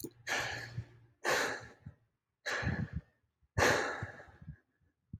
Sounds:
Sigh